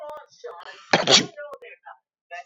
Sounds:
Sneeze